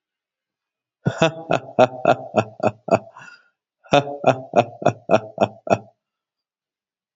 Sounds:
Laughter